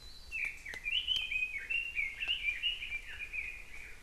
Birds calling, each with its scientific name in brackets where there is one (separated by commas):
Warbling White-eye (Zosterops japonicus), Red-billed Leiothrix (Leiothrix lutea)